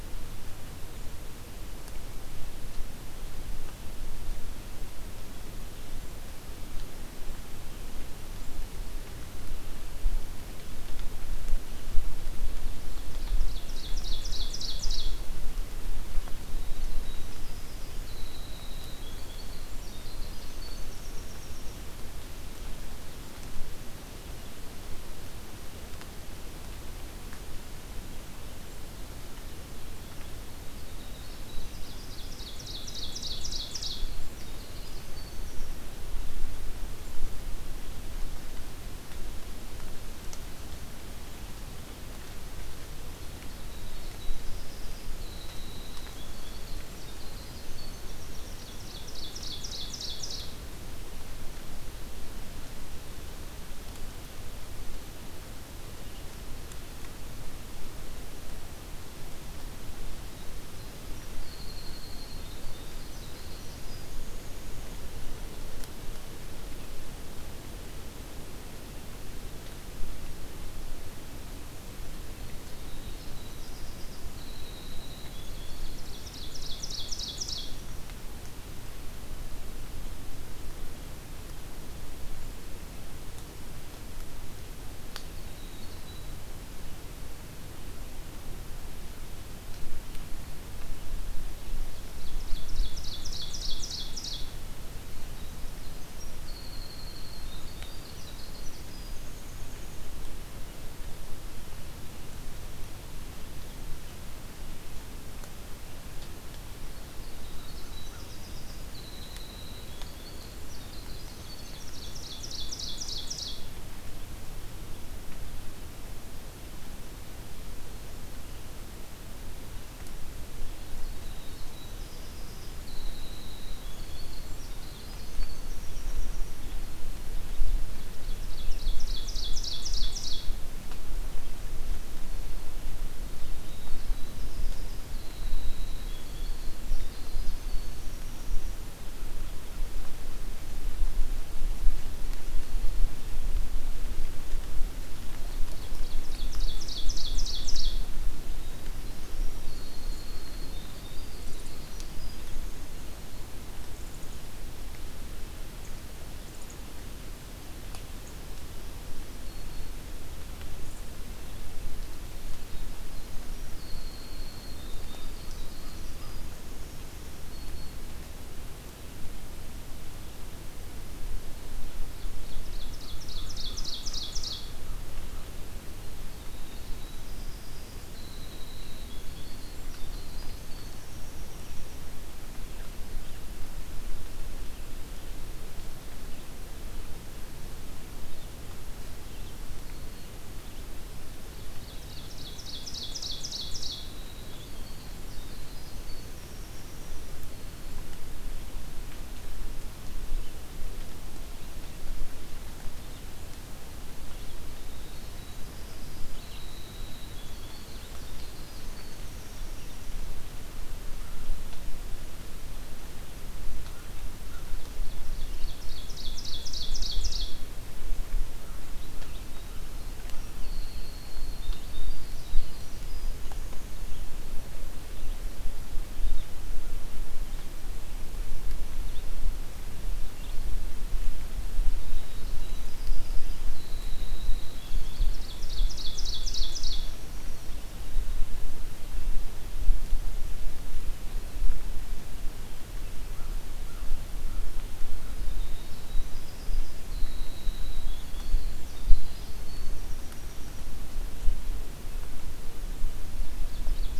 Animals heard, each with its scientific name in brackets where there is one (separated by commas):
Black-throated Green Warbler (Setophaga virens), Red-eyed Vireo (Vireo olivaceus), Ovenbird (Seiurus aurocapilla), Winter Wren (Troglodytes hiemalis), American Crow (Corvus brachyrhynchos)